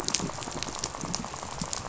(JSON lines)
{"label": "biophony, rattle", "recorder": "SoundTrap 500"}